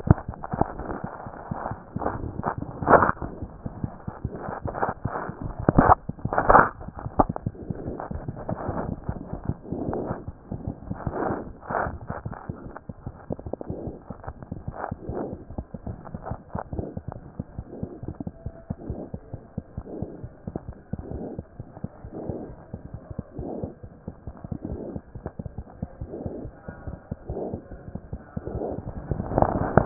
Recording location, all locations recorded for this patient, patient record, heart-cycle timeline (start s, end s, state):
mitral valve (MV)
aortic valve (AV)+mitral valve (MV)
#Age: Infant
#Sex: Female
#Height: 66.0 cm
#Weight: 8.1 kg
#Pregnancy status: False
#Murmur: Unknown
#Murmur locations: nan
#Most audible location: nan
#Systolic murmur timing: nan
#Systolic murmur shape: nan
#Systolic murmur grading: nan
#Systolic murmur pitch: nan
#Systolic murmur quality: nan
#Diastolic murmur timing: nan
#Diastolic murmur shape: nan
#Diastolic murmur grading: nan
#Diastolic murmur pitch: nan
#Diastolic murmur quality: nan
#Outcome: Abnormal
#Campaign: 2014 screening campaign
0.00	18.39	unannotated
18.39	18.45	diastole
18.45	18.53	S1
18.53	18.69	systole
18.69	18.75	S2
18.75	18.89	diastole
18.89	18.97	S1
18.97	19.14	systole
19.14	19.20	S2
19.20	19.34	diastole
19.34	19.41	S1
19.41	19.56	systole
19.56	19.64	S2
19.64	19.78	diastole
19.78	19.86	S1
19.86	20.02	systole
20.02	20.08	S2
20.08	20.24	diastole
20.24	20.32	S1
20.32	20.48	systole
20.48	20.55	S2
20.55	20.69	diastole
20.69	20.77	S1
20.77	20.93	systole
20.93	21.00	S2
21.00	21.15	diastole
21.15	29.86	unannotated